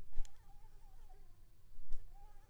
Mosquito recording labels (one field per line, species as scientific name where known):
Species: Anopheles arabiensis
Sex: female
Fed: unfed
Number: one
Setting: cup